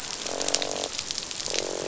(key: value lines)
label: biophony, croak
recorder: SoundTrap 500